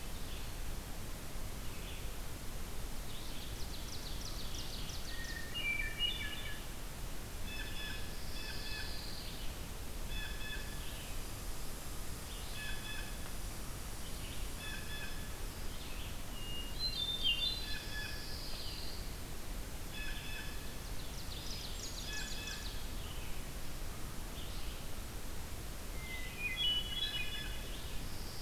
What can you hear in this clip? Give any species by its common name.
Red-eyed Vireo, Ovenbird, Hermit Thrush, Blue Jay, Pine Warbler, Red Squirrel